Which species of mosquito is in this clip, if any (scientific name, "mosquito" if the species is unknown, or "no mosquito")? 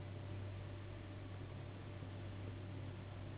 Anopheles gambiae s.s.